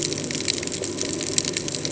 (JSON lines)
{"label": "ambient", "recorder": "HydroMoth"}